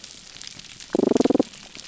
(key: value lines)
label: biophony
recorder: SoundTrap 300